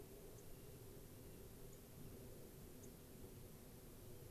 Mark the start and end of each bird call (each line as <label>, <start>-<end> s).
Dark-eyed Junco (Junco hyemalis), 0.4-0.5 s
Clark's Nutcracker (Nucifraga columbiana), 0.5-1.5 s
Dark-eyed Junco (Junco hyemalis), 1.7-1.8 s
Dark-eyed Junco (Junco hyemalis), 2.8-2.9 s
Clark's Nutcracker (Nucifraga columbiana), 3.9-4.3 s